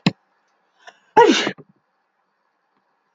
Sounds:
Sneeze